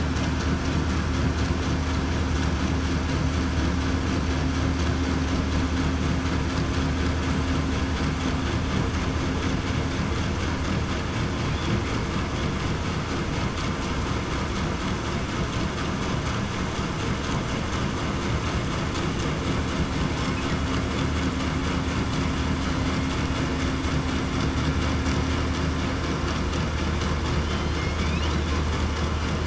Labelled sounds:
27.4	27.8	killer whale, southern resident, 3.0 to 3.1 kHz

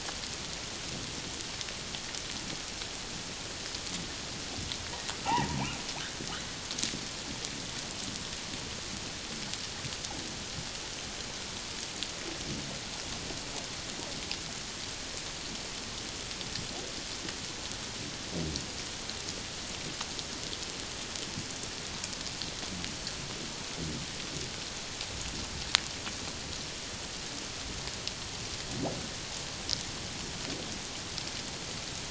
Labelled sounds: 5.3	5.6	humpback whale, 0.78 to 1.1 kHz

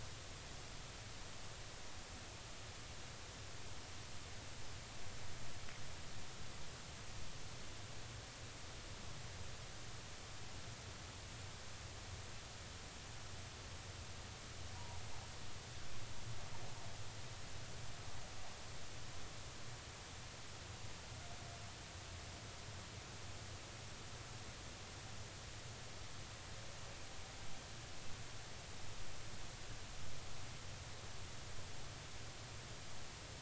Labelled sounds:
14.7	15.0	humpback whale, 0.80 to 1.0 kHz

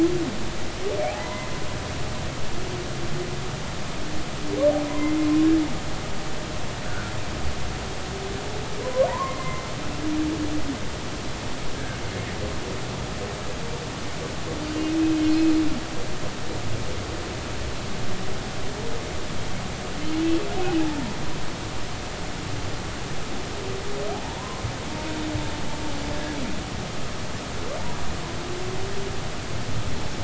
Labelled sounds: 1.1	1.5	humpback whale, 0.90 to 2.1 kHz
4.9	5.1	humpback whale, 0.93 to 1.1 kHz
6.9	7.1	humpback whale, 1.3 to 1.7 kHz
8.8	9.7	humpback whale, 0.90 to 2.2 kHz
11.7	12.0	humpback whale, 1.4 to 1.7 kHz
20.6	20.8	humpback whale, 2.4 to 2.7 kHz
24.1	24.6	humpback whale, 0.80 to 1.1 kHz

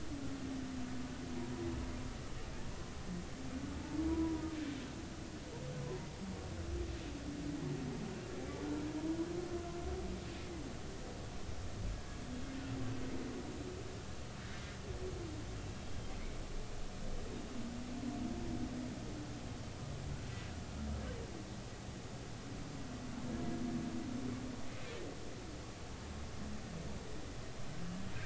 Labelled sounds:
4.1	4.4	humpback whale, 0.90 to 1.0 kHz
16.1	16.4	humpback whale, 2.0 to 2.3 kHz

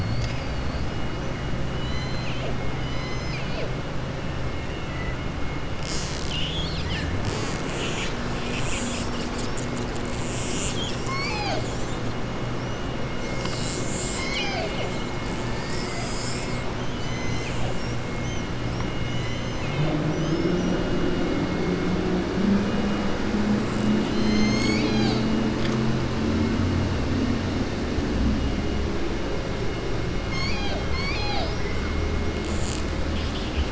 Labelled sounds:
1.7	3.7	killer whale, southern resident, 0.49 to 7.1 kHz
15.4	16.1	killer whale, southern resident, 0.89 to 2.7 kHz
16.9	17.6	killer whale, southern resident, 2.0 to 4.1 kHz

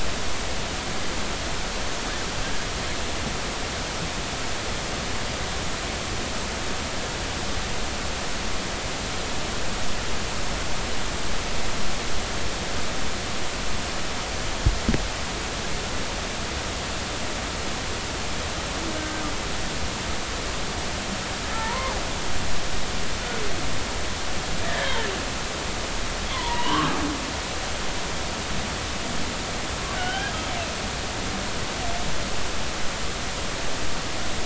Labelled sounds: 18.9	19.2	humpback whale, 1.5 to 1.6 kHz
21.4	21.9	humpback whale, 0.83 to 1.9 kHz
24.6	25.1	humpback whale, 1.5 to 3.3 kHz
26.3	26.9	humpback whale, 0.90 to 3.3 kHz
29.9	30.3	humpback whale, 1.4 to 3.2 kHz

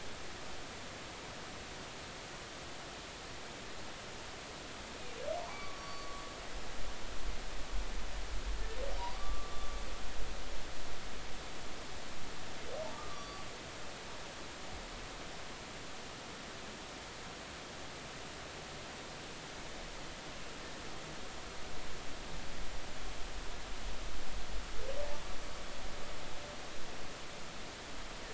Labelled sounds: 5.5	6.2	humpback whale, 1.0 to 4.6 kHz
9.2	9.7	humpback whale, 1.1 to 1.2 kHz
12.9	13.5	humpback whale, 1.1 to 4.7 kHz

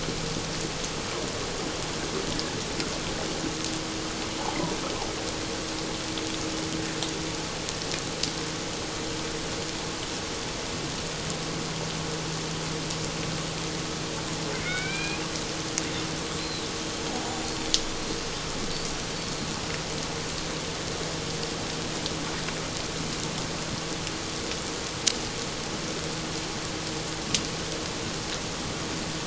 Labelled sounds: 14.5	15.2	killer whale, Bigg's (transient), call T01, 1.3 to 4.1 kHz
16.4	16.7	killer whale, Bigg's (transient), 3.8 to 4.2 kHz
19.1	19.5	killer whale, Bigg's (transient), 4.2 to 4.6 kHz

